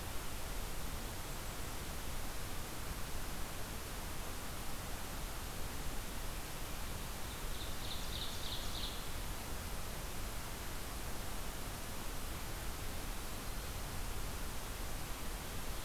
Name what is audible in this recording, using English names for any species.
Blackburnian Warbler, Ovenbird